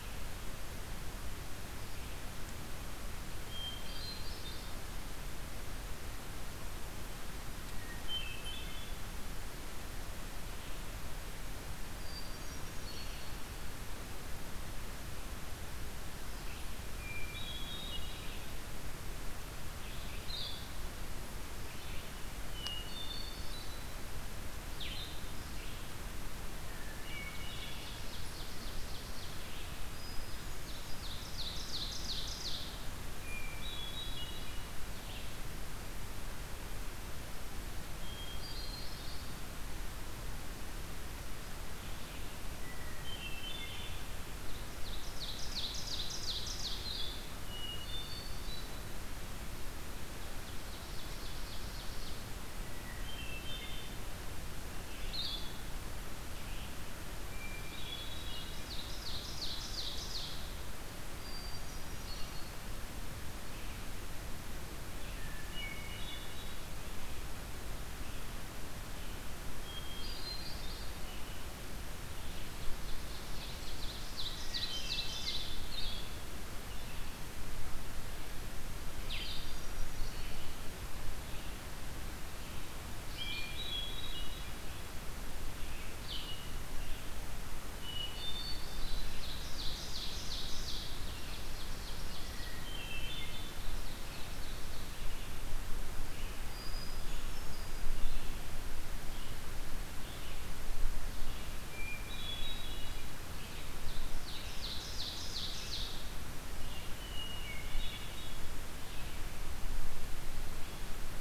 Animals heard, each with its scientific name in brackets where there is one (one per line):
Hermit Thrush (Catharus guttatus)
Blue-headed Vireo (Vireo solitarius)
Ovenbird (Seiurus aurocapilla)
Red-eyed Vireo (Vireo olivaceus)